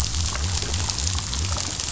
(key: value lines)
label: biophony
recorder: SoundTrap 500